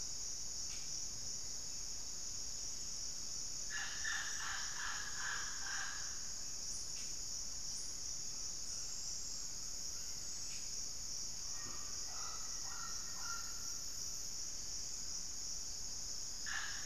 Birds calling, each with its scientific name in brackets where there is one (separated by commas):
White-rumped Sirystes (Sirystes albocinereus), Black-faced Antthrush (Formicarius analis), Mealy Parrot (Amazona farinosa), Wing-barred Piprites (Piprites chloris)